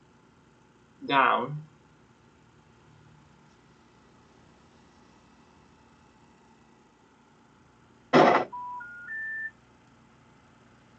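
An even, faint noise lies beneath it all. About 1 second in, someone says "Down." After that, about 8 seconds in, gunfire is heard. Finally, about 9 seconds in, there is the quiet sound of a telephone.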